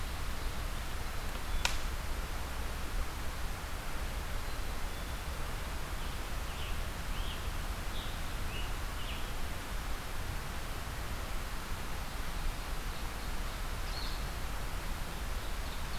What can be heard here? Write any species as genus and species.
Vireo solitarius, Poecile atricapillus, Piranga olivacea, Seiurus aurocapilla